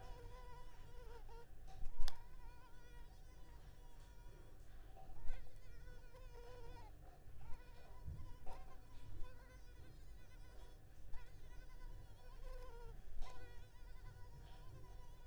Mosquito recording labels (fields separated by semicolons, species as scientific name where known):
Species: Culex pipiens complex; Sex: female; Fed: unfed; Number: one; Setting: cup